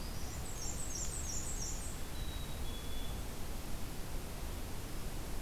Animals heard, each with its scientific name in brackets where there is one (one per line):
Black-capped Chickadee (Poecile atricapillus)
Black-and-white Warbler (Mniotilta varia)